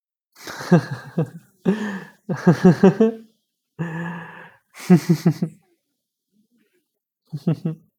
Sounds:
Laughter